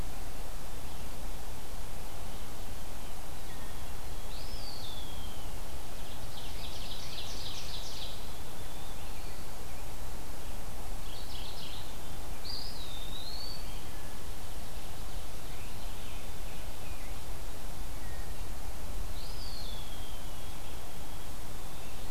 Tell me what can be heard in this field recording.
Eastern Wood-Pewee, Ovenbird, Mourning Warbler, Scarlet Tanager, White-throated Sparrow